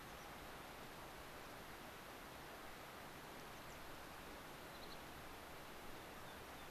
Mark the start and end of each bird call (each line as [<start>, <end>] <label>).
[0.00, 0.30] American Pipit (Anthus rubescens)
[3.30, 3.80] White-crowned Sparrow (Zonotrichia leucophrys)
[4.70, 5.00] unidentified bird
[5.90, 6.70] American Pipit (Anthus rubescens)